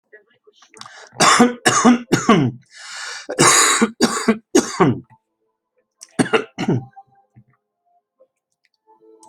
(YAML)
expert_labels:
- quality: good
  cough_type: wet
  dyspnea: false
  wheezing: false
  stridor: false
  choking: false
  congestion: false
  nothing: true
  diagnosis: healthy cough
  severity: pseudocough/healthy cough
age: 78
gender: male
respiratory_condition: false
fever_muscle_pain: false
status: healthy